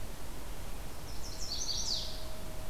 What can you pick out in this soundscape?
Chestnut-sided Warbler